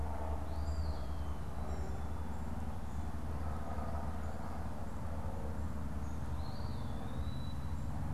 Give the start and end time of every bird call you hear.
[0.37, 1.47] Eastern Wood-Pewee (Contopus virens)
[1.57, 2.07] American Robin (Turdus migratorius)
[6.27, 8.07] Eastern Wood-Pewee (Contopus virens)

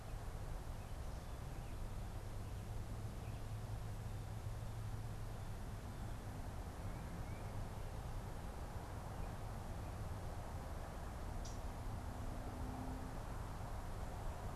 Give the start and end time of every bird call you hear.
[11.25, 11.85] Common Yellowthroat (Geothlypis trichas)

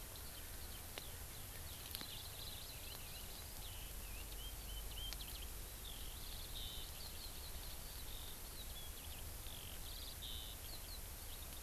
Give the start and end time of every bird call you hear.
[0.00, 11.62] Eurasian Skylark (Alauda arvensis)

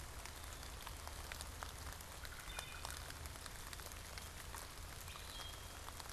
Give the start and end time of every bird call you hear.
[1.65, 3.35] Yellow-bellied Sapsucker (Sphyrapicus varius)
[2.05, 3.15] Wood Thrush (Hylocichla mustelina)
[4.75, 5.85] Wood Thrush (Hylocichla mustelina)

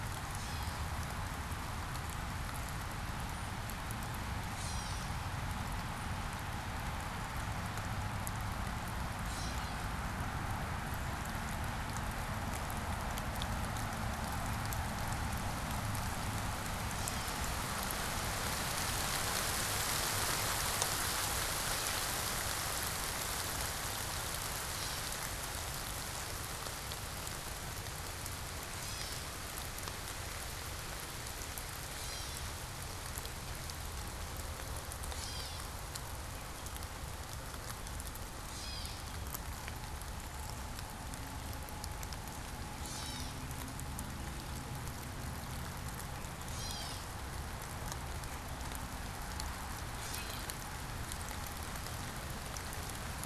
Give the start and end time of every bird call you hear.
[0.00, 5.80] Gray Catbird (Dumetella carolinensis)
[8.90, 10.30] Gray Catbird (Dumetella carolinensis)
[24.70, 36.30] Gray Catbird (Dumetella carolinensis)
[38.30, 50.90] Gray Catbird (Dumetella carolinensis)

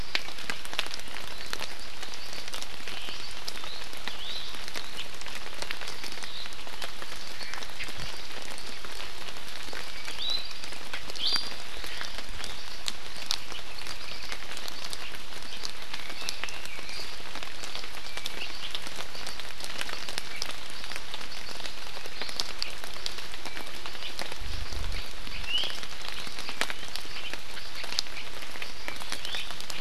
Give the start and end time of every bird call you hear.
[2.85, 3.15] Omao (Myadestes obscurus)
[3.55, 4.35] Iiwi (Drepanis coccinea)
[9.65, 10.85] Apapane (Himatione sanguinea)
[10.05, 10.55] Iiwi (Drepanis coccinea)
[11.15, 11.65] Iiwi (Drepanis coccinea)
[13.65, 14.45] Apapane (Himatione sanguinea)
[15.85, 16.95] Red-billed Leiothrix (Leiothrix lutea)
[18.05, 18.35] Iiwi (Drepanis coccinea)
[25.45, 25.75] Iiwi (Drepanis coccinea)
[29.15, 29.45] Iiwi (Drepanis coccinea)

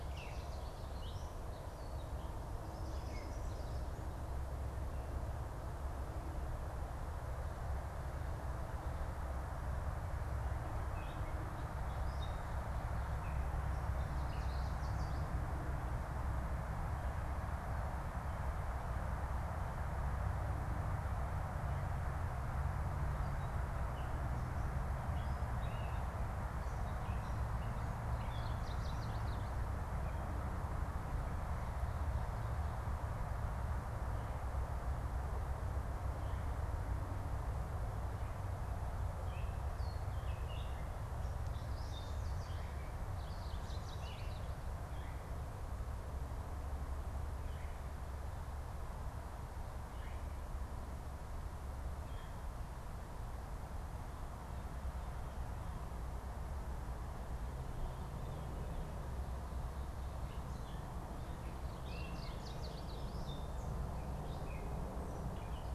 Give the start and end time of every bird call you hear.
[0.00, 1.50] Chestnut-sided Warbler (Setophaga pensylvanica)
[0.00, 3.50] Gray Catbird (Dumetella carolinensis)
[2.60, 4.00] Yellow Warbler (Setophaga petechia)
[10.80, 14.50] Gray Catbird (Dumetella carolinensis)
[14.10, 15.40] Yellow Warbler (Setophaga petechia)
[23.40, 28.70] Gray Catbird (Dumetella carolinensis)
[28.20, 29.70] Chestnut-sided Warbler (Setophaga pensylvanica)
[39.10, 44.40] Gray Catbird (Dumetella carolinensis)
[42.90, 44.60] Chestnut-sided Warbler (Setophaga pensylvanica)
[44.80, 50.20] Veery (Catharus fuscescens)
[60.10, 65.70] Gray Catbird (Dumetella carolinensis)
[61.70, 63.50] Chestnut-sided Warbler (Setophaga pensylvanica)

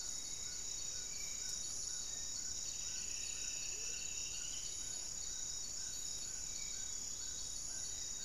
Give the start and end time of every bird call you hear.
[0.00, 6.91] Spot-winged Antshrike (Pygiptila stellaris)
[0.00, 8.25] Amazonian Trogon (Trogon ramonianus)
[1.81, 4.01] Black-faced Antthrush (Formicarius analis)
[2.31, 5.21] Striped Woodcreeper (Xiphorhynchus obsoletus)
[3.51, 4.01] Amazonian Motmot (Momotus momota)
[7.61, 8.25] Goeldi's Antbird (Akletos goeldii)

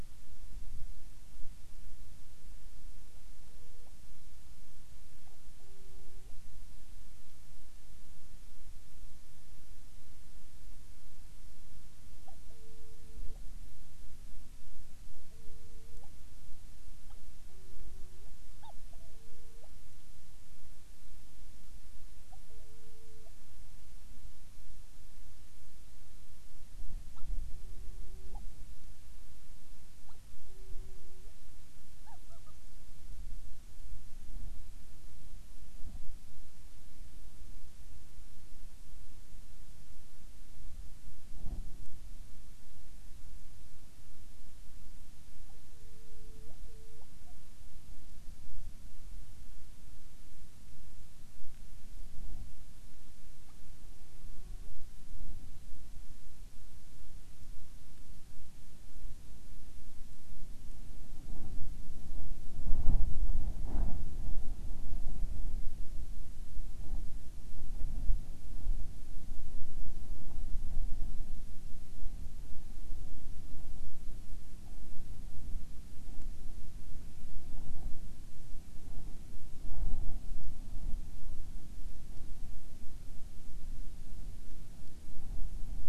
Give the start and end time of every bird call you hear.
[2.98, 3.98] Hawaiian Petrel (Pterodroma sandwichensis)
[5.18, 6.38] Hawaiian Petrel (Pterodroma sandwichensis)
[12.18, 13.48] Hawaiian Petrel (Pterodroma sandwichensis)
[15.08, 16.08] Hawaiian Petrel (Pterodroma sandwichensis)
[17.08, 19.78] Hawaiian Petrel (Pterodroma sandwichensis)
[22.28, 23.38] Hawaiian Petrel (Pterodroma sandwichensis)
[27.08, 28.48] Hawaiian Petrel (Pterodroma sandwichensis)
[29.98, 31.38] Hawaiian Petrel (Pterodroma sandwichensis)
[31.98, 32.58] Hawaiian Petrel (Pterodroma sandwichensis)
[45.48, 47.38] Hawaiian Petrel (Pterodroma sandwichensis)
[53.38, 54.78] Hawaiian Petrel (Pterodroma sandwichensis)

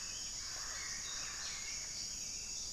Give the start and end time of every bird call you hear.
[0.00, 2.73] Hauxwell's Thrush (Turdus hauxwelli)
[0.00, 2.73] Plumbeous Pigeon (Patagioenas plumbea)

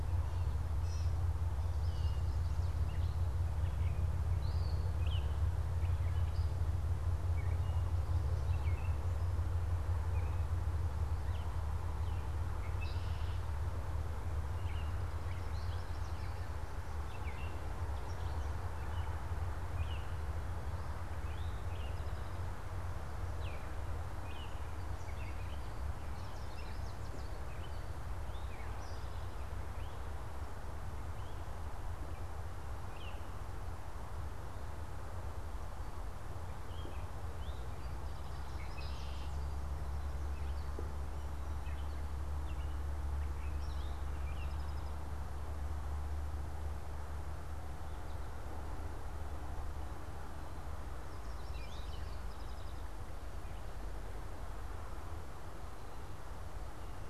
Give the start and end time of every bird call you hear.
[0.66, 44.96] Gray Catbird (Dumetella carolinensis)
[12.46, 13.46] Red-winged Blackbird (Agelaius phoeniceus)
[14.76, 16.46] Yellow Warbler (Setophaga petechia)
[21.26, 22.76] Eastern Towhee (Pipilo erythrophthalmus)
[25.96, 27.56] Yellow Warbler (Setophaga petechia)
[27.96, 29.46] Eastern Towhee (Pipilo erythrophthalmus)
[36.96, 38.56] Eastern Towhee (Pipilo erythrophthalmus)
[38.36, 39.46] Red-winged Blackbird (Agelaius phoeniceus)
[43.66, 45.26] Eastern Towhee (Pipilo erythrophthalmus)
[50.96, 52.36] Yellow Warbler (Setophaga petechia)
[51.26, 52.96] Eastern Towhee (Pipilo erythrophthalmus)

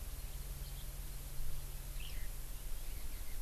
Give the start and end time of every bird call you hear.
[1.99, 2.29] Eurasian Skylark (Alauda arvensis)

